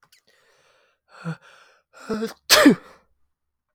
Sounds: Sneeze